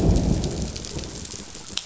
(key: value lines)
label: biophony, growl
recorder: SoundTrap 500